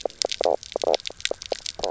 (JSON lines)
{"label": "biophony, knock croak", "recorder": "SoundTrap 300"}